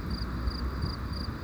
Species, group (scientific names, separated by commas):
Gryllus bimaculatus, Orthoptera